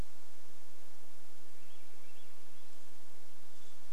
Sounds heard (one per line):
Swainson's Thrush song
Hermit Thrush song